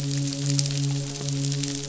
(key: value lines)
label: biophony, midshipman
recorder: SoundTrap 500